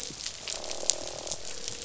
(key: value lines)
label: biophony, croak
recorder: SoundTrap 500